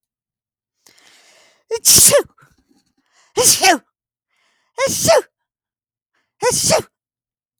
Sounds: Sneeze